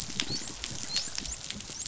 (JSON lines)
{"label": "biophony, dolphin", "recorder": "SoundTrap 500"}